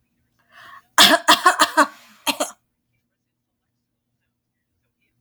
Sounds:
Cough